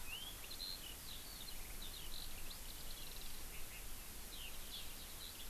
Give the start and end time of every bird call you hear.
[0.00, 5.49] Eurasian Skylark (Alauda arvensis)

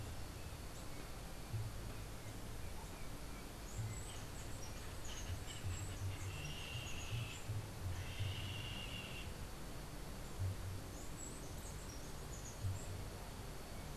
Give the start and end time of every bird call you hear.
[3.50, 7.70] Andean Emerald (Uranomitra franciae)
[5.80, 9.40] Yellow-headed Caracara (Milvago chimachima)

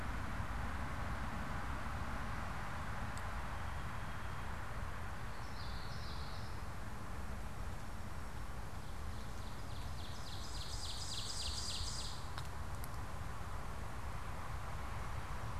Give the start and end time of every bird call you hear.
[5.17, 6.57] Common Yellowthroat (Geothlypis trichas)
[8.67, 12.47] Ovenbird (Seiurus aurocapilla)

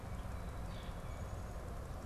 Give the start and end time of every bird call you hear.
[0.00, 1.50] Tufted Titmouse (Baeolophus bicolor)
[0.70, 1.20] Common Grackle (Quiscalus quiscula)

